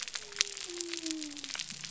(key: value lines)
label: biophony
recorder: SoundTrap 300